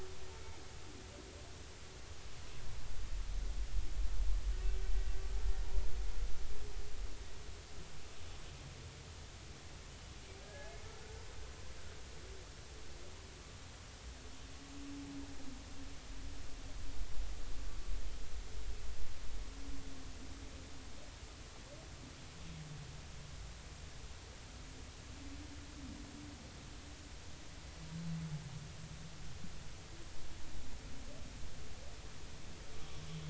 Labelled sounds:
10.4	10.7	humpback whale, 1.6 to 1.8 kHz

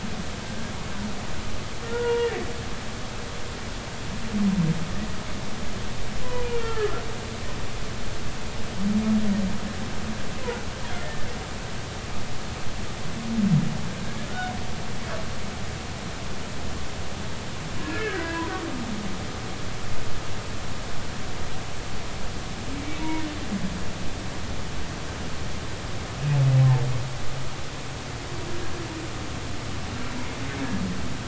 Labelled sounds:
1.8	2.4	humpback whale, 0.90 to 2.9 kHz
6.2	6.9	humpback whale, 0.90 to 1.5 kHz
11.0	11.3	humpback whale, 1.7 to 1.9 kHz
17.8	18.4	humpback whale, 1.4 to 2.0 kHz
23.0	23.3	humpback whale, 0.90 to 2.3 kHz
26.6	26.8	humpback whale, 0.80 to 1.1 kHz

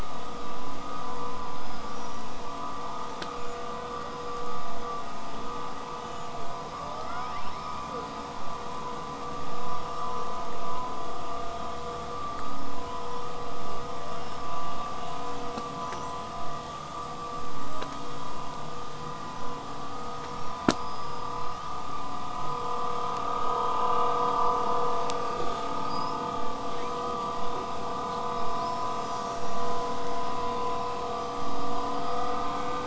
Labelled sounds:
1.4	2.4	killer whale, southern resident, whistle, 4.8 to 5.9 kHz
6.7	8.2	killer whale, southern resident, L pod, call S02iii, 1.1 to 5.5 kHz
13.6	15.1	killer whale, southern resident, 1.2 to 5.7 kHz
15.4	16.7	killer whale, southern resident, whistle, 5.6 to 8.0 kHz
20.6	21.8	killer whale, southern resident, L pod, call S19, 1.5 to 8.0 kHz
25.8	26.2	killer whale, southern resident, whistle, 4.6 to 8.0 kHz
26.6	27.1	killer whale, southern resident, 1.5 to 4.4 kHz
28.5	29.7	killer whale, southern resident, whistle, 3.9 to 6.1 kHz

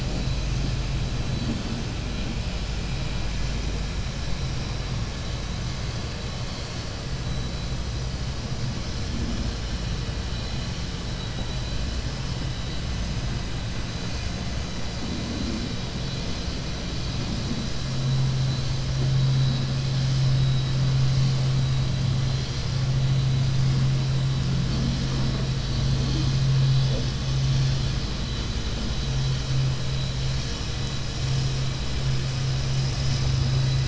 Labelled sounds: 11.1	12.0	vessel noise, 2.9 to 5.0 kHz

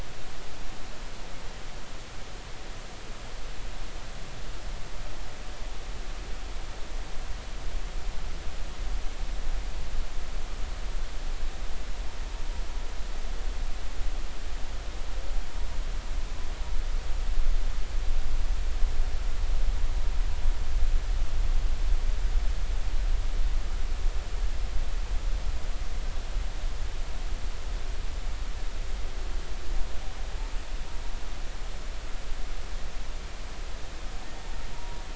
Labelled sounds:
34.7	35.0	humpback whale, 0.86 to 0.99 kHz

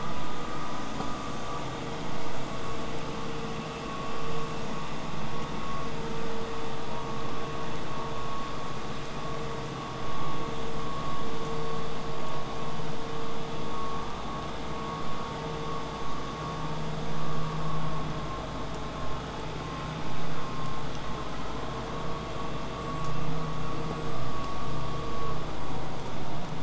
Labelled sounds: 0.0	5.0	vessel noise, 0 to 8.0 kHz

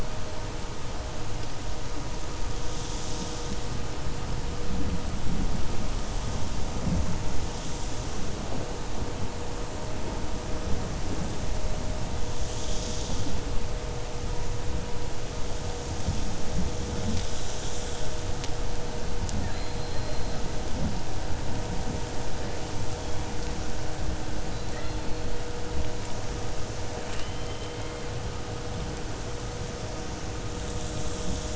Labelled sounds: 27.0	28.0	killer whale, 1.1 to 5.4 kHz

